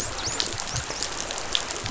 {"label": "biophony, dolphin", "recorder": "SoundTrap 500"}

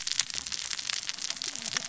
{"label": "biophony, cascading saw", "recorder": "SoundTrap 600 or HydroMoth"}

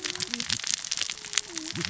{"label": "biophony, cascading saw", "recorder": "SoundTrap 600 or HydroMoth"}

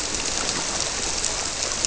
{"label": "biophony", "recorder": "SoundTrap 300"}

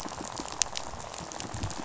{"label": "biophony, rattle", "recorder": "SoundTrap 500"}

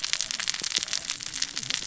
{"label": "biophony, cascading saw", "recorder": "SoundTrap 600 or HydroMoth"}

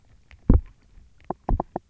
{"label": "biophony, knock", "recorder": "SoundTrap 300"}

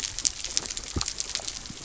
{"label": "biophony", "recorder": "SoundTrap 300"}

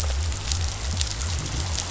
{"label": "biophony", "recorder": "SoundTrap 500"}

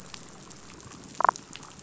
{"label": "biophony, damselfish", "recorder": "SoundTrap 500"}
{"label": "biophony", "recorder": "SoundTrap 500"}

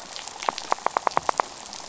{"label": "biophony, knock", "recorder": "SoundTrap 500"}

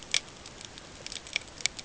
{"label": "ambient", "recorder": "HydroMoth"}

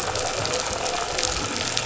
{"label": "anthrophony, boat engine", "recorder": "SoundTrap 500"}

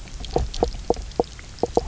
{"label": "biophony, knock croak", "recorder": "SoundTrap 300"}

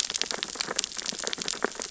{"label": "biophony, sea urchins (Echinidae)", "recorder": "SoundTrap 600 or HydroMoth"}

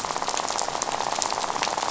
{"label": "biophony, rattle", "recorder": "SoundTrap 500"}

